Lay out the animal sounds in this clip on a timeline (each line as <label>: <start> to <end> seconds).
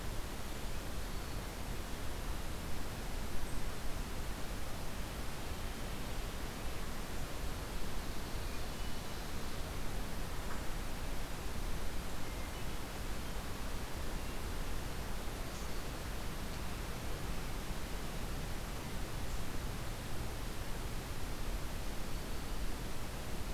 Hermit Thrush (Catharus guttatus): 0.8 to 1.9 seconds
Ovenbird (Seiurus aurocapilla): 7.6 to 9.5 seconds
Hermit Thrush (Catharus guttatus): 12.3 to 13.1 seconds